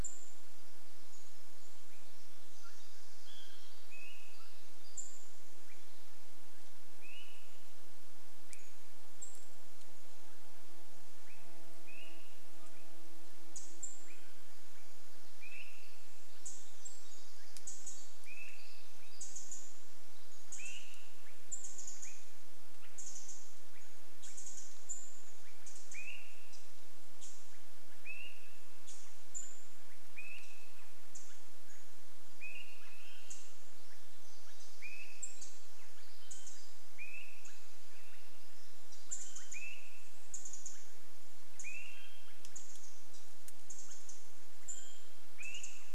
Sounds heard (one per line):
Pacific-slope Flycatcher call
Pacific Wren song
Mountain Quail call
Swainson's Thrush call
insect buzz
unidentified bird chip note
unidentified sound
Pacific Wren call